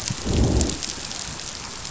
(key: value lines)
label: biophony, growl
recorder: SoundTrap 500